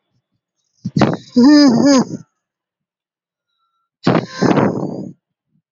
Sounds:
Sigh